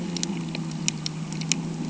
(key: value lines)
label: anthrophony, boat engine
recorder: HydroMoth